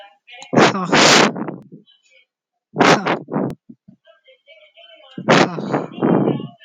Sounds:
Sigh